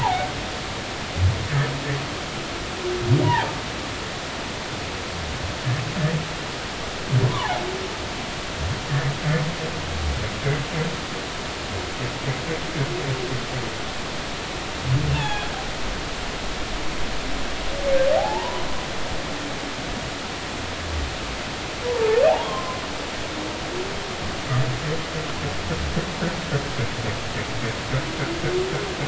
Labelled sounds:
7.3	7.6	humpback whale, 0.80 to 1.2 kHz
15.1	15.5	humpback whale, 0.80 to 3.7 kHz
18.2	18.7	humpback whale, 0.80 to 1.2 kHz
21.8	22.8	humpback whale, 0.80 to 1.1 kHz

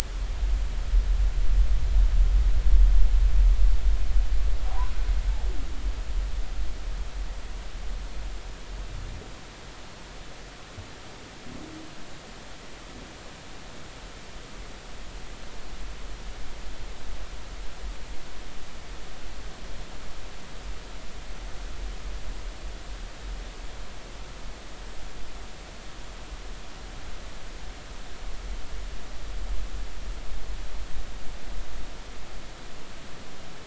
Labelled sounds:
4.6	4.9	humpback whale, 0.80 to 1.2 kHz

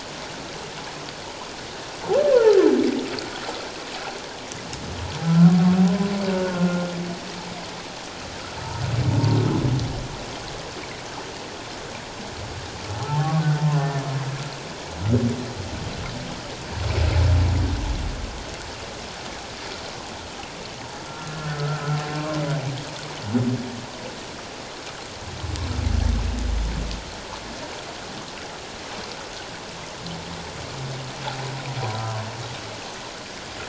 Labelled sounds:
5.2	5.5	humpback whale, 1.3 to 1.5 kHz
6.4	6.9	humpback whale, 1.3 to 1.5 kHz
9.1	9.4	humpback whale, 0.84 to 0.97 kHz
13.2	13.4	humpback whale, 1.0 to 1.2 kHz
21.1	21.8	humpback whale, 1.2 to 1.5 kHz

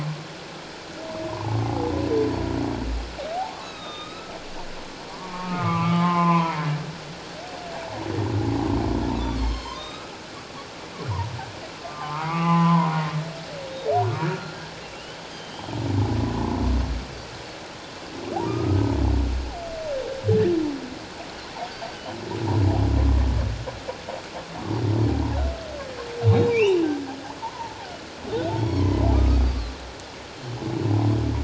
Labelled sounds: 1.3	1.9	humpback whale, 0.78 to 1.1 kHz
3.5	4.3	humpback whale, 1.0 to 4.0 kHz
5.1	6.6	humpback whale, 0.78 to 2.6 kHz
9.4	10.1	humpback whale, 0.91 to 4.3 kHz
11.9	13.1	humpback whale, 0.78 to 2.9 kHz
14.3	15.7	humpback whale, 1.3 to 3.3 kHz
18.4	18.8	humpback whale, 1.1 to 1.3 kHz
21.7	22.0	humpback whale, 4.4 to 4.8 kHz
26.3	26.8	humpback whale, 2.2 to 4.1 kHz
27.4	27.7	humpback whale, 0.84 to 1.1 kHz
28.6	29.7	humpback whale, 0.94 to 4.9 kHz
30.4	30.6	humpback whale, 3.0 to 3.2 kHz

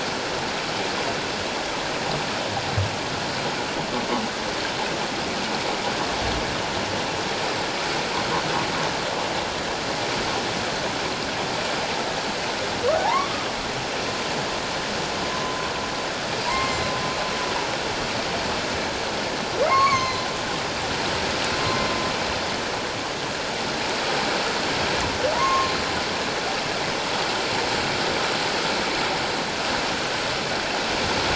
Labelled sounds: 12.9	13.3	humpback whale, 0.78 to 1.2 kHz
15.3	15.6	humpback whale, 0.97 to 1.2 kHz
16.4	16.9	humpback whale, 0.91 to 7.5 kHz
19.7	20.3	humpback whale, 0.94 to 4.5 kHz
25.3	25.7	humpback whale, 0.81 to 6.5 kHz

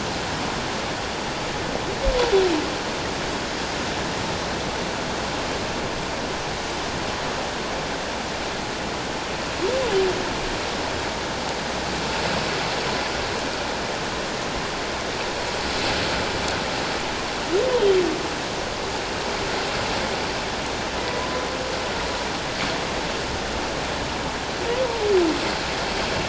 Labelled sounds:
21.0	21.2	humpback whale, 1.9 to 2.1 kHz

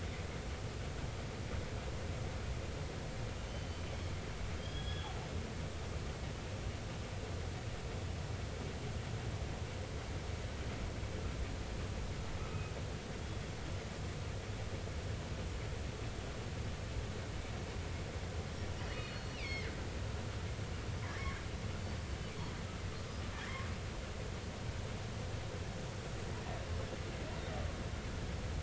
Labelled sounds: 3.5	5.1	killer whale, northern resident, 1.5 to 5.1 kHz
18.9	19.7	killer whale, northern resident, 1.9 to 4.4 kHz
21.8	22.0	killer whale, northern resident, 4.5 to 4.6 kHz

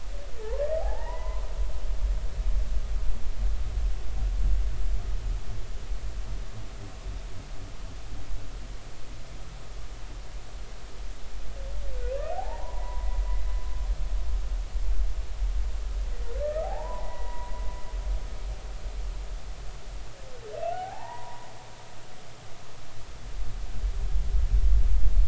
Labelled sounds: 0.4	1.4	humpback whale, 0.80 to 2.1 kHz
12.3	13.1	humpback whale, 0.80 to 1.1 kHz
16.4	17.5	humpback whale, 0.80 to 2.1 kHz
20.7	21.5	humpback whale, 0.80 to 2.0 kHz

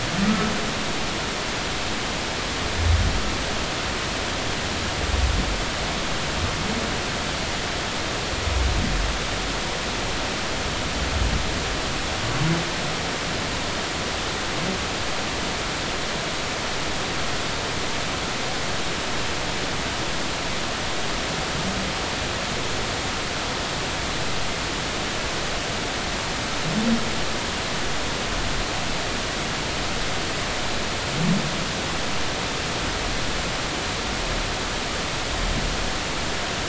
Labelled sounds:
0.2	0.5	humpback whale, 1.2 to 1.3 kHz

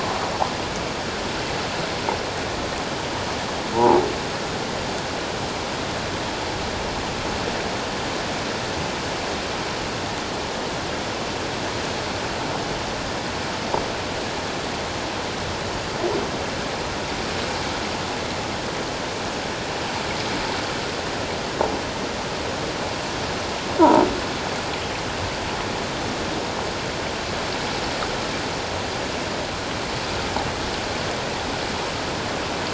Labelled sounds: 3.7	4.0	croaking sound likely from a nearby submerged object, 0.78 to 1.0 kHz

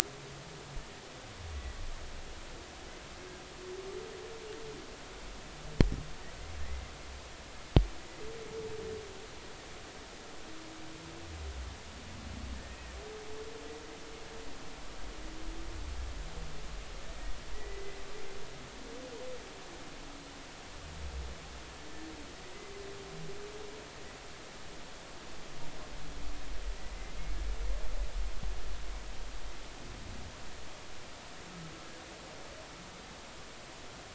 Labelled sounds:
6.6	6.9	humpback whale, 1.7 to 2.1 kHz
12.5	13.0	humpback whale, 1.7 to 2.0 kHz
17.5	18.0	humpback whale, 1.9 to 2.1 kHz
26.9	27.2	humpback whale, 2.0 to 2.1 kHz

